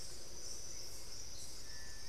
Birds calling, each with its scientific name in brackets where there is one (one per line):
Cinereous Tinamou (Crypturellus cinereus)